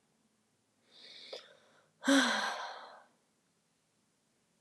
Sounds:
Sigh